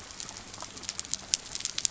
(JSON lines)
{"label": "biophony", "recorder": "SoundTrap 300"}